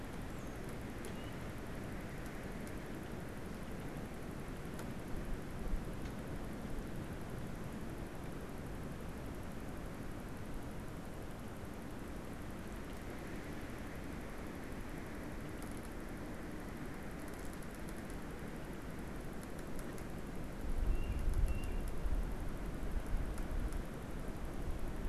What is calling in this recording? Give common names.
unidentified bird, Tufted Titmouse